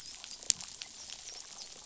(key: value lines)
label: biophony, dolphin
recorder: SoundTrap 500